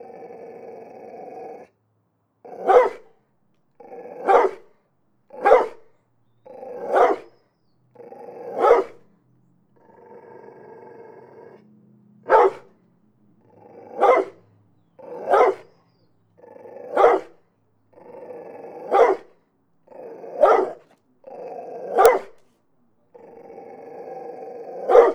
does the animal growl before barking sometimes?
yes